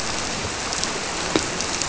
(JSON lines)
{"label": "biophony", "recorder": "SoundTrap 300"}